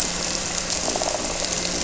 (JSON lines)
{"label": "anthrophony, boat engine", "recorder": "SoundTrap 300"}
{"label": "biophony", "recorder": "SoundTrap 300"}